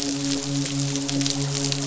{"label": "biophony, midshipman", "recorder": "SoundTrap 500"}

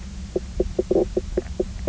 {"label": "biophony, knock croak", "recorder": "SoundTrap 300"}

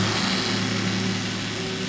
{"label": "anthrophony, boat engine", "recorder": "SoundTrap 500"}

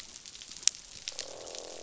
{"label": "biophony, croak", "recorder": "SoundTrap 500"}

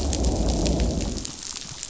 {"label": "biophony, growl", "recorder": "SoundTrap 500"}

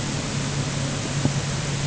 {"label": "anthrophony, boat engine", "recorder": "HydroMoth"}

